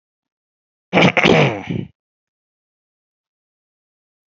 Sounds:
Throat clearing